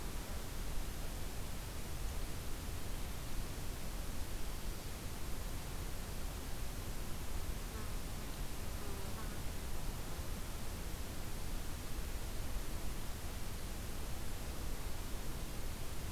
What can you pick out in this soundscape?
forest ambience